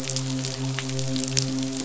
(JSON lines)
{"label": "biophony, midshipman", "recorder": "SoundTrap 500"}